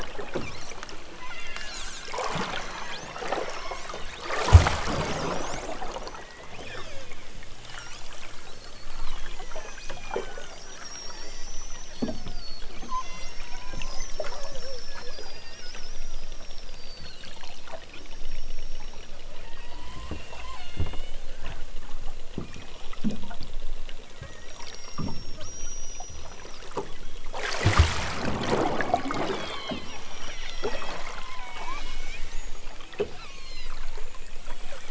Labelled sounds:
1.1	1.8	killer whale, southern Alaska resident, 0.60 to 8.0 kHz
2.5	4.1	killer whale, southern Alaska resident, 0.69 to 6.8 kHz
5.2	5.9	killer whale, southern Alaska resident, 4.5 to 8.0 kHz
6.5	7.0	killer whale, southern Alaska resident, 0.69 to 8.0 kHz
7.6	8.1	killer whale, southern Alaska resident, 1.1 to 8.0 kHz
9.4	10.9	killer whale, southern Alaska resident, 1.1 to 6.6 kHz
11.8	12.3	killer whale, southern Alaska resident, 1.2 to 4.8 kHz
12.8	13.4	killer whale, southern Alaska resident, 0.69 to 6.3 kHz
15.3	15.9	killer whale, southern Alaska resident, 1.5 to 3.5 kHz
17.9	21.2	killer whale, southern Alaska resident, 0.65 to 6.5 kHz
22.5	23.4	killer whale, southern Alaska resident, 1.6 to 6.3 kHz
24.2	26.6	killer whale, southern Alaska resident, 1.1 to 7.1 kHz
28.6	32.3	killer whale, southern Alaska resident, 0.51 to 8.0 kHz
33.2	33.8	killer whale, southern Alaska resident, 0.51 to 8.0 kHz
34.5	34.8	killer whale, southern Alaska resident, 2.6 to 5.1 kHz

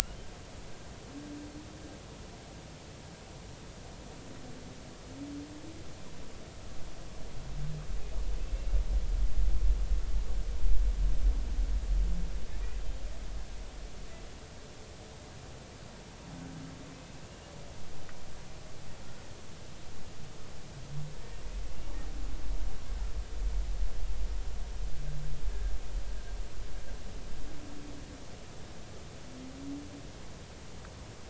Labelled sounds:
16.9	17.2	humpback whale, 2.5 to 2.7 kHz

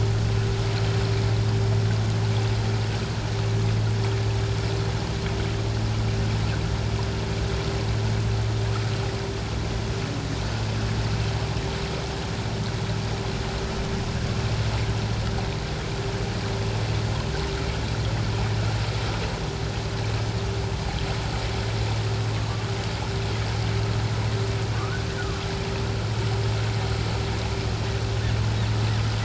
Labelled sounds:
24.7	25.4	humpback whale, 1.1 to 1.7 kHz

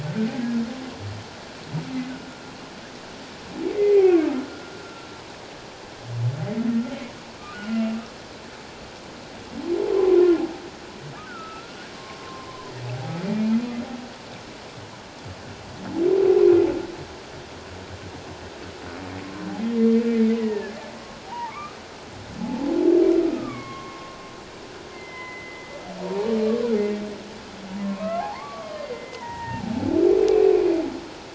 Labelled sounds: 3.7	4.5	humpback whale, 1.0 to 2.5 kHz
7.5	8.0	humpback whale, 1.3 to 3.0 kHz
11.3	13.8	humpback whale, 0.97 to 2.6 kHz
16.4	16.7	humpback whale, 2.4 to 2.7 kHz
19.2	22.7	humpback whale, 0.78 to 2.7 kHz
23.2	24.2	humpback whale, 1.0 to 2.4 kHz
24.9	26.3	humpback whale, 0.78 to 3.2 kHz
27.8	29.7	humpback whale, 0.78 to 2.8 kHz

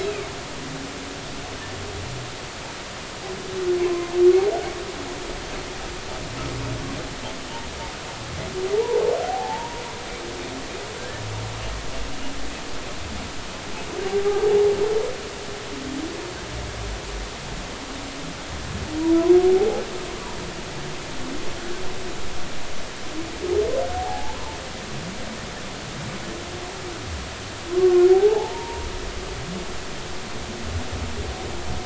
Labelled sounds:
0.0	0.3	humpback whale, 2.1 to 2.7 kHz
3.8	4.1	humpback whale, 0.99 to 1.1 kHz
8.7	9.8	humpback whale, 0.80 to 1.0 kHz
11.0	11.3	humpback whale, 1.5 to 1.8 kHz
14.1	14.4	humpback whale, 0.80 to 0.86 kHz
19.6	19.8	humpback whale, 0.80 to 0.86 kHz
23.9	24.5	humpback whale, 0.80 to 1.1 kHz
27.8	28.9	humpback whale, 0.80 to 1.2 kHz

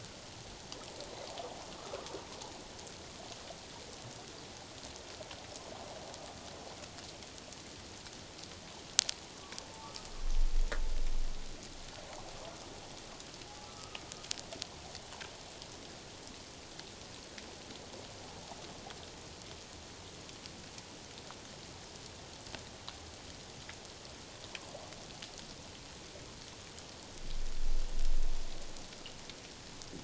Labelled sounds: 13.6	14.0	humpback whale, 1.1 to 1.4 kHz

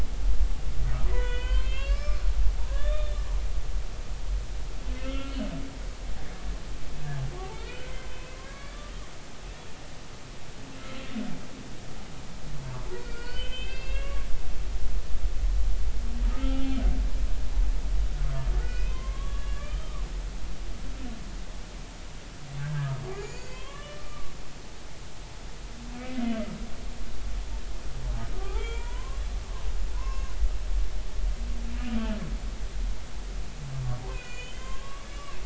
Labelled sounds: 1.1	3.2	humpback whale, 0.90 to 5.4 kHz
5.0	5.4	humpback whale, 1.3 to 3.0 kHz
7.6	8.9	humpback whale, 1.3 to 3.6 kHz
12.9	14.4	humpback whale, 1.1 to 5.1 kHz
16.3	16.8	humpback whale, 0.80 to 3.0 kHz
18.6	20.0	humpback whale, 0.96 to 5.1 kHz
22.6	24.3	humpback whale, 0.99 to 7.2 kHz
25.9	26.2	humpback whale, 2.1 to 2.4 kHz
28.3	29.2	humpback whale, 0.80 to 3.4 kHz
29.9	30.3	humpback whale, 0.90 to 2.8 kHz
31.9	32.2	humpback whale, 3.0 to 3.2 kHz
34.1	35.4	humpback whale, 0.99 to 7.1 kHz

